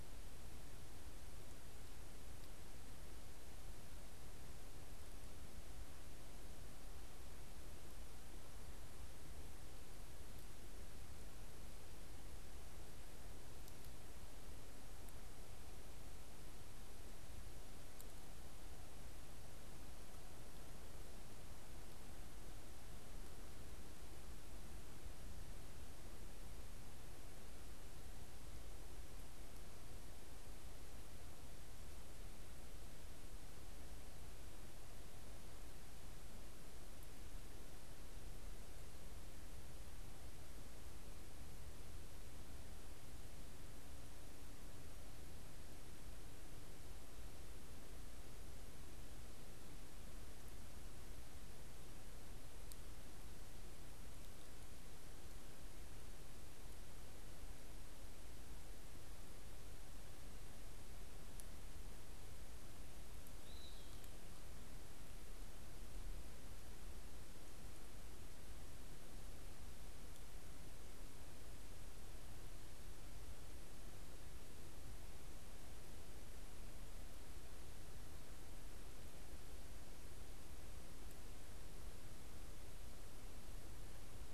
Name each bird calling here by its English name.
Eastern Wood-Pewee